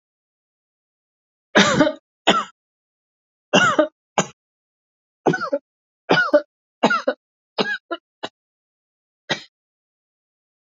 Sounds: Cough